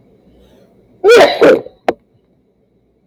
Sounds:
Sneeze